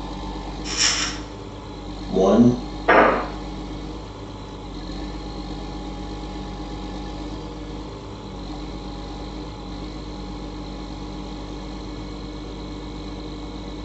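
A quiet background noise sits about 15 dB below the sounds. At 0.64 seconds, a coin drops. Then, at 2.1 seconds, a voice says "One." Finally, at 2.87 seconds, an explosion can be heard.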